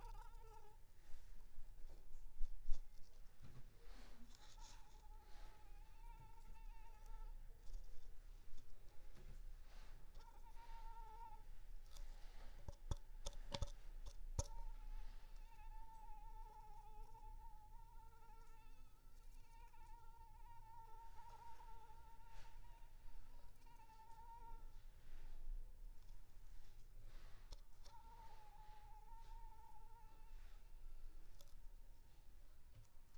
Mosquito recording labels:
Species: Anopheles arabiensis; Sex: female; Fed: unfed; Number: one; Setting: cup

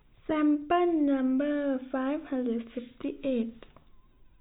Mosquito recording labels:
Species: no mosquito; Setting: cup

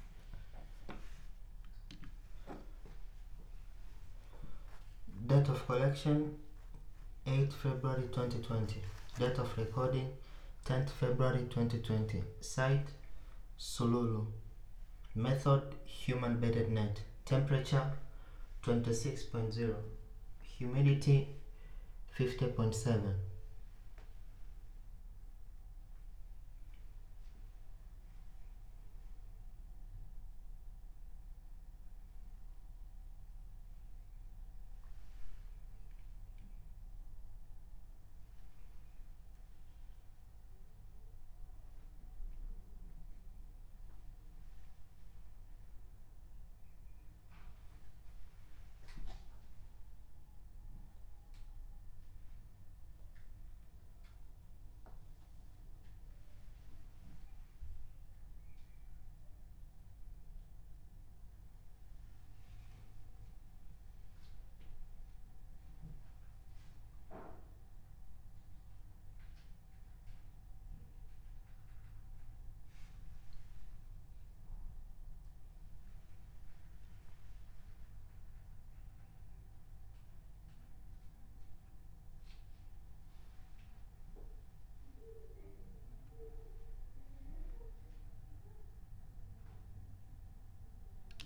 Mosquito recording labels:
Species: no mosquito; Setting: cup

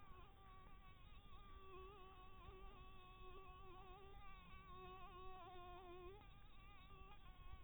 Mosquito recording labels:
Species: Anopheles dirus; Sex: female; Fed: blood-fed; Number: one; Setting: cup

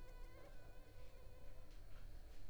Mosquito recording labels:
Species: Anopheles arabiensis; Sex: female; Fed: unfed; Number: one; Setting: cup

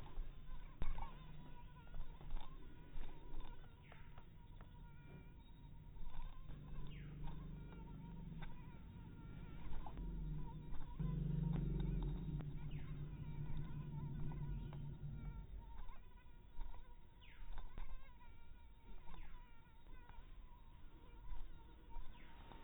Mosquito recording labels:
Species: mosquito; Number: one; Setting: cup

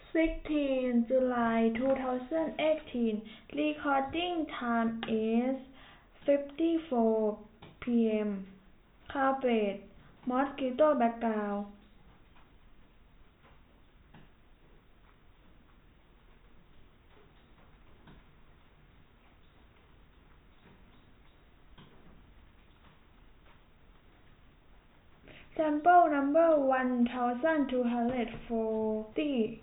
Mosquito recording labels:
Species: no mosquito; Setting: cup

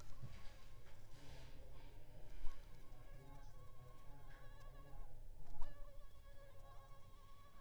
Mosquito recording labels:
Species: Aedes aegypti; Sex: female; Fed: unfed; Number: one; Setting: cup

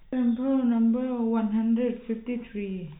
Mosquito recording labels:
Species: no mosquito; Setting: cup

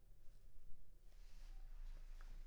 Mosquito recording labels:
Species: Anopheles maculipalpis; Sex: female; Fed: unfed; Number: one; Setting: cup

